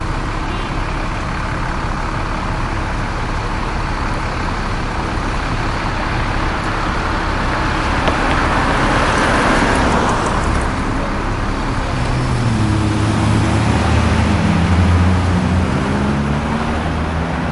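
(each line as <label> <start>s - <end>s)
A car engine is running while stationary. 0.0s - 17.5s
A car honks sharply. 0.3s - 0.8s
A car is driving by slowly. 7.9s - 10.7s
A car drives by and fades into the distance. 12.2s - 17.5s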